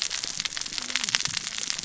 {"label": "biophony, cascading saw", "recorder": "SoundTrap 600 or HydroMoth"}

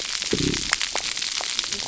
{"label": "biophony, cascading saw", "recorder": "SoundTrap 300"}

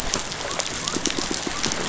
{"label": "biophony", "recorder": "SoundTrap 500"}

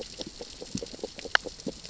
{"label": "biophony, grazing", "recorder": "SoundTrap 600 or HydroMoth"}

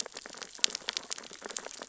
{"label": "biophony, sea urchins (Echinidae)", "recorder": "SoundTrap 600 or HydroMoth"}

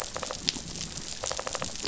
{"label": "biophony", "recorder": "SoundTrap 500"}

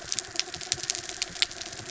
{"label": "anthrophony, mechanical", "recorder": "SoundTrap 300"}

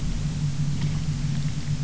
{"label": "anthrophony, boat engine", "recorder": "SoundTrap 300"}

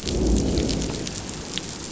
{"label": "biophony, growl", "recorder": "SoundTrap 500"}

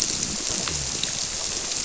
{"label": "biophony", "recorder": "SoundTrap 300"}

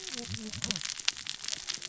{"label": "biophony, cascading saw", "recorder": "SoundTrap 600 or HydroMoth"}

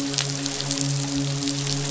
{"label": "biophony, midshipman", "recorder": "SoundTrap 500"}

